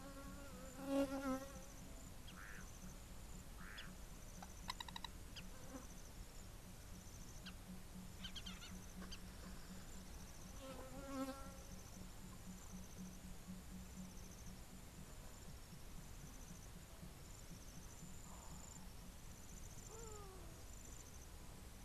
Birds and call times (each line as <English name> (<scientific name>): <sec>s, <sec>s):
Hadada Ibis (Bostrychia hagedash): 20.2s